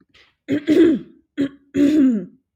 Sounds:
Throat clearing